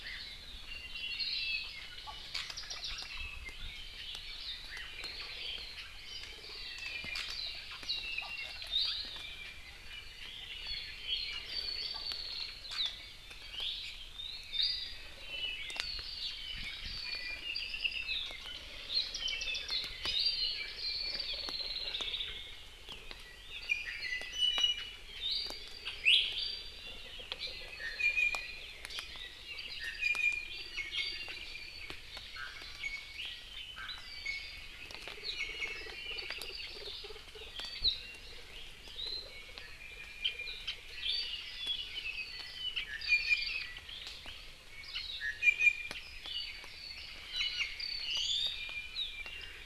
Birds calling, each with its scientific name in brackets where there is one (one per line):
Apapane (Himatione sanguinea)
Hawaii Creeper (Loxops mana)
Hawaii Amakihi (Chlorodrepanis virens)
Iiwi (Drepanis coccinea)